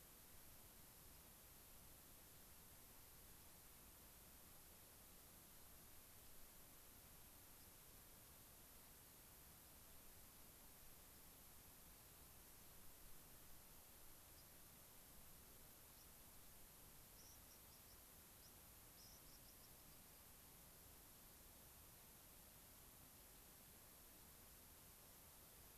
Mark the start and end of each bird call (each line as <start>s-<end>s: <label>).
17.1s-20.3s: unidentified bird